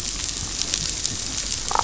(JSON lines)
{"label": "biophony, damselfish", "recorder": "SoundTrap 500"}